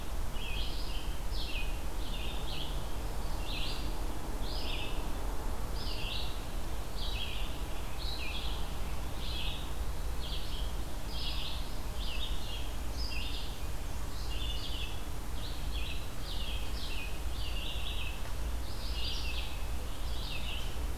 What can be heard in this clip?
Red-eyed Vireo, Black-and-white Warbler